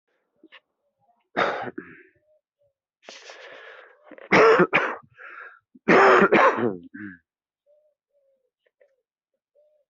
{"expert_labels": [{"quality": "poor", "cough_type": "unknown", "dyspnea": false, "wheezing": false, "stridor": false, "choking": false, "congestion": false, "nothing": true, "diagnosis": "healthy cough", "severity": "pseudocough/healthy cough"}], "age": 41, "gender": "male", "respiratory_condition": false, "fever_muscle_pain": false, "status": "symptomatic"}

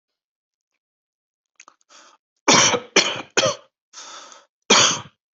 {"expert_labels": [{"quality": "ok", "cough_type": "dry", "dyspnea": false, "wheezing": false, "stridor": false, "choking": false, "congestion": false, "nothing": true, "diagnosis": "COVID-19", "severity": "mild"}], "age": 36, "gender": "male", "respiratory_condition": false, "fever_muscle_pain": false, "status": "symptomatic"}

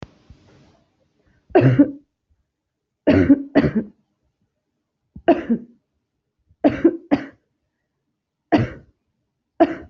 {"expert_labels": [{"quality": "ok", "cough_type": "dry", "dyspnea": false, "wheezing": false, "stridor": false, "choking": false, "congestion": false, "nothing": true, "diagnosis": "COVID-19", "severity": "mild"}, {"quality": "good", "cough_type": "dry", "dyspnea": false, "wheezing": false, "stridor": false, "choking": false, "congestion": false, "nothing": true, "diagnosis": "COVID-19", "severity": "mild"}, {"quality": "good", "cough_type": "dry", "dyspnea": false, "wheezing": false, "stridor": false, "choking": false, "congestion": false, "nothing": true, "diagnosis": "lower respiratory tract infection", "severity": "mild"}, {"quality": "good", "cough_type": "dry", "dyspnea": false, "wheezing": false, "stridor": false, "choking": false, "congestion": false, "nothing": true, "diagnosis": "COVID-19", "severity": "mild"}], "age": 29, "gender": "female", "respiratory_condition": true, "fever_muscle_pain": false, "status": "symptomatic"}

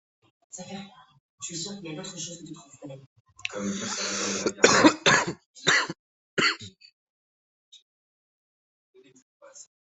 {"expert_labels": [{"quality": "poor", "cough_type": "unknown", "dyspnea": false, "wheezing": false, "stridor": false, "choking": false, "congestion": false, "nothing": true, "diagnosis": "COVID-19", "severity": "mild"}], "age": 27, "gender": "male", "respiratory_condition": false, "fever_muscle_pain": false, "status": "healthy"}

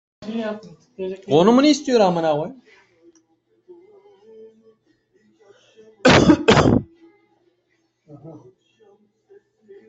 {"expert_labels": [{"quality": "good", "cough_type": "wet", "dyspnea": false, "wheezing": false, "stridor": false, "choking": false, "congestion": false, "nothing": true, "diagnosis": "healthy cough", "severity": "pseudocough/healthy cough"}]}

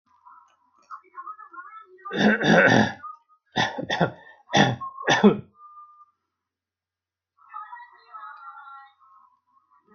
{"expert_labels": [{"quality": "poor", "cough_type": "dry", "dyspnea": false, "wheezing": false, "stridor": false, "choking": false, "congestion": false, "nothing": true, "diagnosis": "healthy cough", "severity": "pseudocough/healthy cough"}], "age": 40, "gender": "male", "respiratory_condition": false, "fever_muscle_pain": false, "status": "symptomatic"}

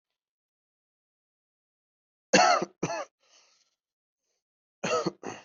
{"expert_labels": [{"quality": "ok", "cough_type": "dry", "dyspnea": false, "wheezing": false, "stridor": false, "choking": false, "congestion": false, "nothing": true, "diagnosis": "healthy cough", "severity": "pseudocough/healthy cough"}], "age": 25, "gender": "male", "respiratory_condition": false, "fever_muscle_pain": false, "status": "COVID-19"}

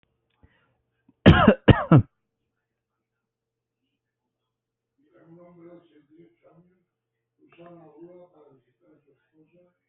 {"expert_labels": [{"quality": "ok", "cough_type": "unknown", "dyspnea": false, "wheezing": false, "stridor": false, "choking": false, "congestion": false, "nothing": true, "diagnosis": "healthy cough", "severity": "pseudocough/healthy cough"}], "age": 26, "gender": "male", "respiratory_condition": false, "fever_muscle_pain": false, "status": "COVID-19"}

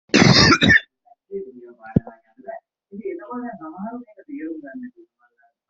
{"expert_labels": [{"quality": "ok", "cough_type": "wet", "dyspnea": false, "wheezing": false, "stridor": false, "choking": false, "congestion": false, "nothing": true, "diagnosis": "COVID-19", "severity": "mild"}]}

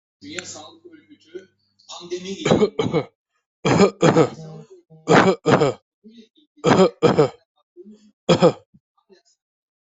{"expert_labels": [{"quality": "good", "cough_type": "unknown", "dyspnea": false, "wheezing": false, "stridor": false, "choking": false, "congestion": false, "nothing": true, "diagnosis": "healthy cough", "severity": "pseudocough/healthy cough"}], "age": 39, "gender": "male", "respiratory_condition": false, "fever_muscle_pain": false, "status": "healthy"}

